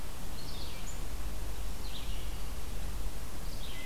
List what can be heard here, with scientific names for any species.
Vireo olivaceus